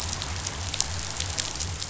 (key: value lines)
label: biophony
recorder: SoundTrap 500